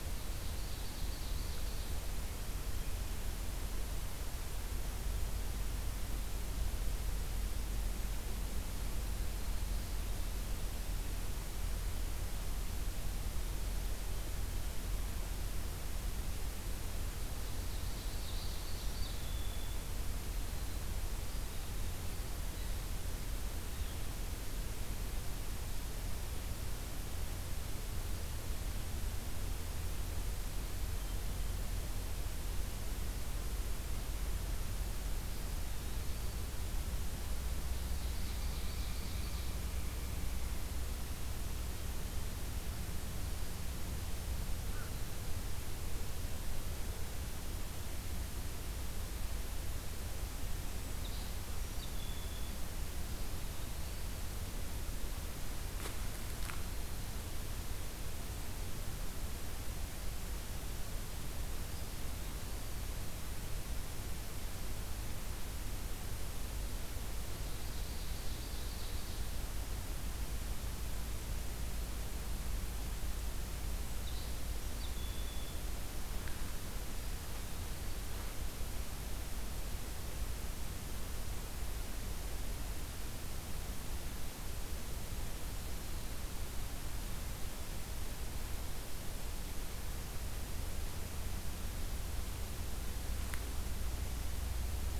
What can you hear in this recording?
Ovenbird, Red-winged Blackbird, Blue Jay, Eastern Wood-Pewee, Pileated Woodpecker